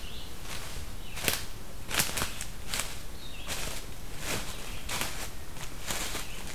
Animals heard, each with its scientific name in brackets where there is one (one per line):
Red-eyed Vireo (Vireo olivaceus)